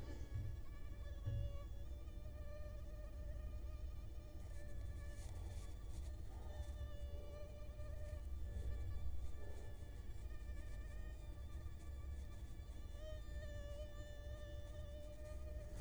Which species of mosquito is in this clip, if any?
Culex quinquefasciatus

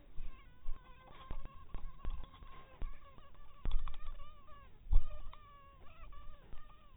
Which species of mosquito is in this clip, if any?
mosquito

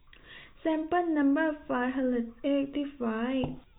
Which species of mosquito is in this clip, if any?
no mosquito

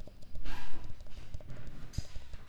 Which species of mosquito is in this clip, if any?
Mansonia uniformis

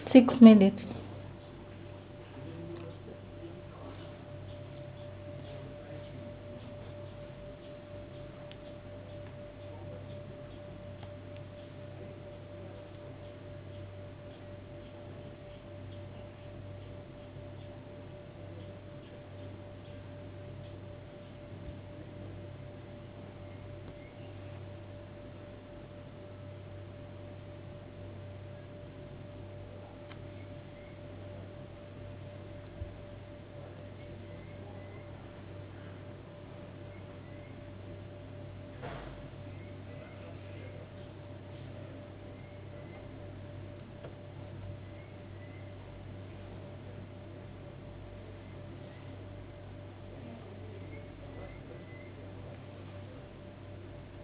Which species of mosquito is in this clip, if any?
no mosquito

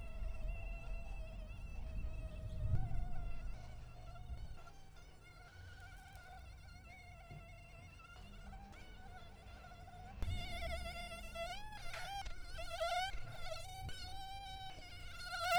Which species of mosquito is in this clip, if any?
Toxorhynchites brevipalpis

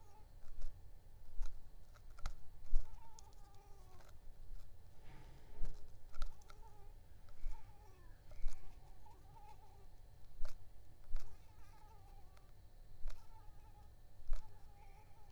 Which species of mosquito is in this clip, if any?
Anopheles arabiensis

